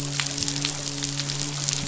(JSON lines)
{"label": "biophony, midshipman", "recorder": "SoundTrap 500"}